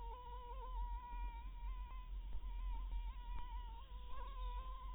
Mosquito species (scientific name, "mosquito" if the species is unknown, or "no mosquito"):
Anopheles maculatus